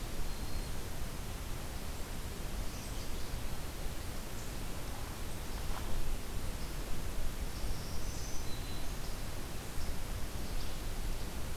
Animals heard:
Black-throated Green Warbler (Setophaga virens)

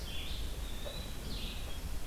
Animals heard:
Eastern Wood-Pewee (Contopus virens)
Red-eyed Vireo (Vireo olivaceus)

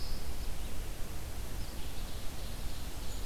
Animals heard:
Red-eyed Vireo (Vireo olivaceus)
Ovenbird (Seiurus aurocapilla)

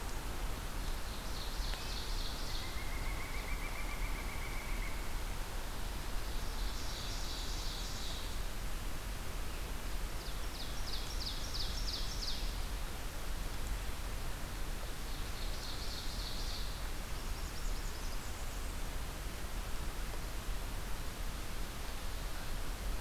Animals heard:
Blackburnian Warbler (Setophaga fusca)
Pileated Woodpecker (Dryocopus pileatus)
Ovenbird (Seiurus aurocapilla)

